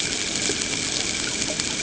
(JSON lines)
{"label": "ambient", "recorder": "HydroMoth"}